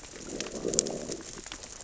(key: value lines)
label: biophony, growl
recorder: SoundTrap 600 or HydroMoth